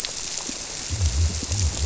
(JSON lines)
{"label": "biophony", "recorder": "SoundTrap 300"}